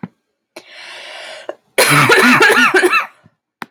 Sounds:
Cough